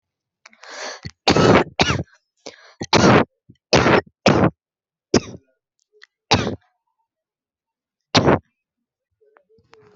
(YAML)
expert_labels:
- quality: ok
  cough_type: dry
  dyspnea: false
  wheezing: false
  stridor: false
  choking: false
  congestion: false
  nothing: false
  diagnosis: obstructive lung disease
  severity: mild
age: 20
gender: female
respiratory_condition: true
fever_muscle_pain: false
status: symptomatic